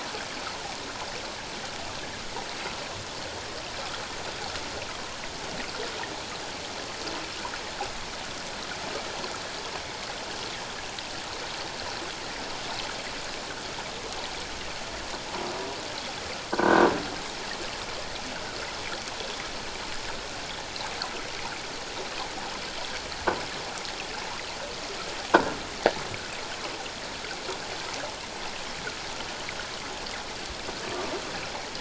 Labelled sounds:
16.5	16.9	croaking sound likely from a nearby submerged object, 1.4 to 1.7 kHz

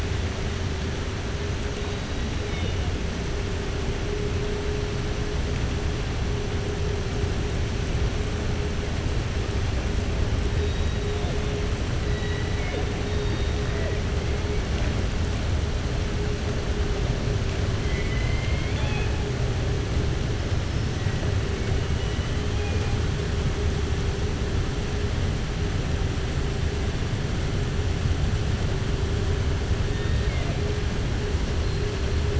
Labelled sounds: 17.8	19.1	killer whale, southern resident, 0.67 to 4.1 kHz
29.9	30.6	killer whale, southern resident, 0.61 to 4.6 kHz

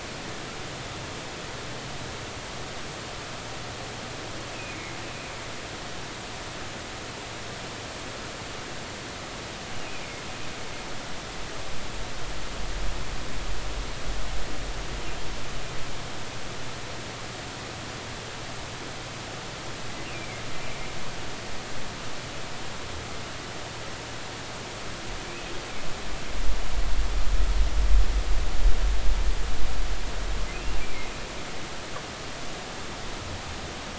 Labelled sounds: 4.7	5.0	humpback whale, 2.1 to 2.4 kHz
20.1	20.3	humpback whale, 2.2 to 2.9 kHz

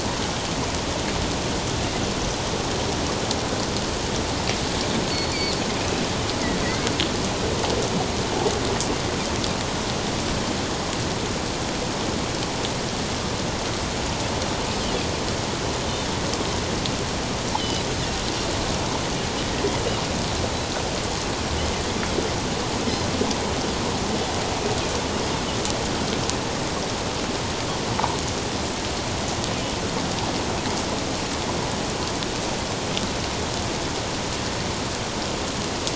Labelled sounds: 5.1	5.6	Pacific white-sided dolphin, 4.1 to 4.7 kHz
17.6	17.8	Pacific white-sided dolphin, 2.8 to 3.2 kHz

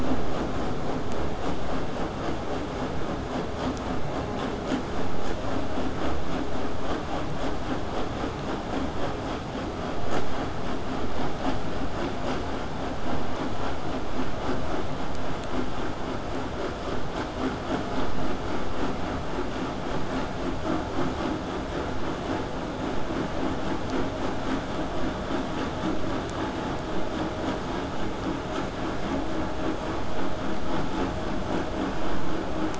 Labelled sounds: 19.9	24.9	vessel noise, 0 to 8.0 kHz

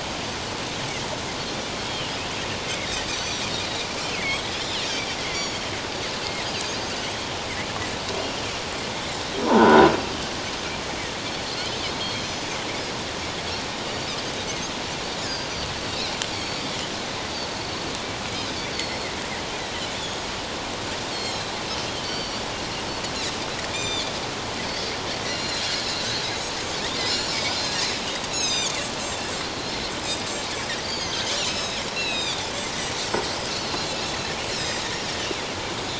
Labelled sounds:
1.8	2.1	Pacific white-sided dolphin, 2.8 to 3.3 kHz
3.1	4.4	Pacific white-sided dolphin, 1.9 to 6.2 kHz
5.3	5.7	Pacific white-sided dolphin, 3.1 to 4.7 kHz
9.4	9.9	croaking sound likely from a nearby submerged object, 0.78 to 1.6 kHz
12.0	12.5	Pacific white-sided dolphin, 3.1 to 6.1 kHz
13.9	14.2	Pacific white-sided dolphin, 4.4 to 4.7 kHz
15.2	16.7	Pacific white-sided dolphin, 4.3 to 6.8 kHz
17.5	17.9	Pacific white-sided dolphin, 4.4 to 4.6 kHz
18.7	19.1	Pacific white-sided dolphin, 4.3 to 4.6 kHz
20.0	20.3	Pacific white-sided dolphin, 6.5 to 6.9 kHz
21.1	22.4	Pacific white-sided dolphin, 2.8 to 5.8 kHz
23.7	24.1	Pacific white-sided dolphin, 2.2 to 7.4 kHz
25.3	25.7	Pacific white-sided dolphin, 2.8 to 4.3 kHz
27.0	27.7	Pacific white-sided dolphin, 4.7 to 7.2 kHz
28.3	28.8	Pacific white-sided dolphin, 2.3 to 8.0 kHz
29.5	32.5	Pacific white-sided dolphin, 2.3 to 8.0 kHz
34.5	34.8	Pacific white-sided dolphin, 2.4 to 7.8 kHz

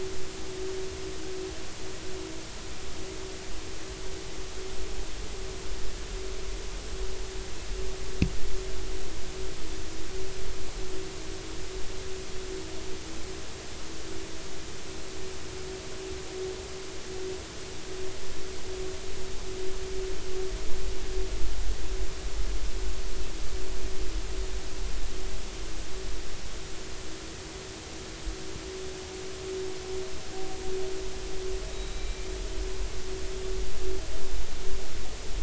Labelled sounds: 31.7	32.3	killer whale, northern resident, 2.3 to 4.0 kHz

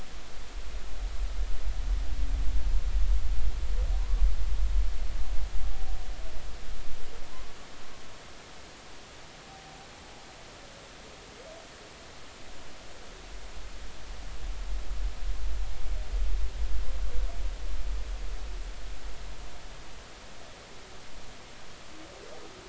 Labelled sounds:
7.3	7.6	humpback whale, 0.96 to 1.2 kHz

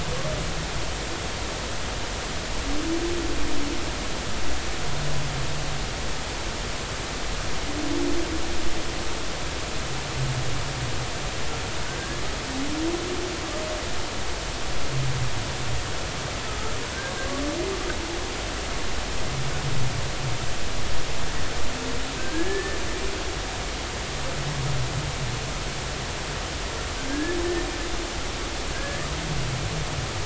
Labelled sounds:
12.0	12.2	humpback whale, 1.5 to 1.8 kHz
16.5	16.7	humpback whale, 1.2 to 1.4 kHz
22.2	22.8	humpback whale, 1.5 to 1.8 kHz
27.1	27.4	humpback whale, 1.6 to 1.8 kHz
28.7	29.1	humpback whale, 1.5 to 1.9 kHz

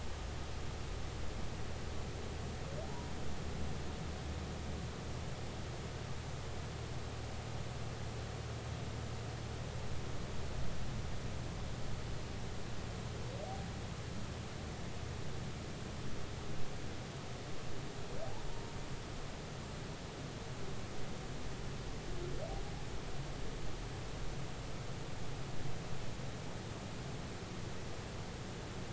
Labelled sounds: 2.8	3.1	humpback whale, 0.80 to 1.0 kHz

